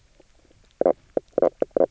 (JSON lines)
{"label": "biophony, knock croak", "recorder": "SoundTrap 300"}